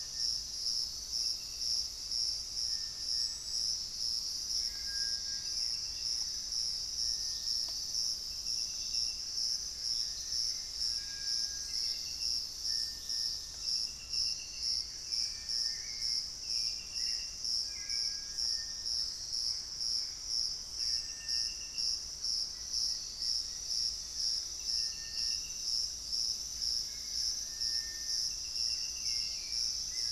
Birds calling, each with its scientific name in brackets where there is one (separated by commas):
Collared Trogon (Trogon collaris), Hauxwell's Thrush (Turdus hauxwelli), Gray Antbird (Cercomacra cinerascens), Buff-breasted Wren (Cantorchilus leucotis), Wing-barred Piprites (Piprites chloris)